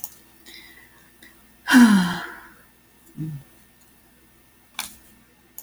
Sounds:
Sigh